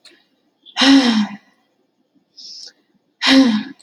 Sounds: Sigh